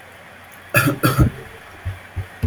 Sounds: Cough